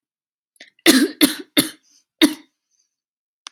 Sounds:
Cough